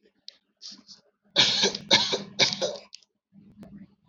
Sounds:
Cough